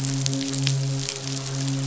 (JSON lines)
{"label": "biophony, midshipman", "recorder": "SoundTrap 500"}